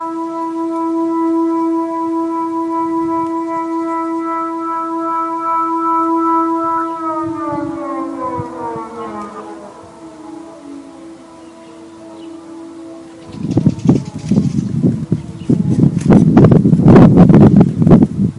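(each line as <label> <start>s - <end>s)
Air raid sirens ringing continuously loudly at the same frequency. 0.0s - 6.9s
Air raid sirens fade slowly at different distances. 6.9s - 13.3s
Birds make various sounds at different distances in an irregular pattern. 10.0s - 17.8s
Wind noises with varying loudness and irregular rhythm. 13.4s - 18.4s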